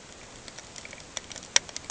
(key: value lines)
label: ambient
recorder: HydroMoth